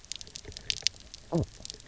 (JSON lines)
{"label": "biophony, knock croak", "recorder": "SoundTrap 300"}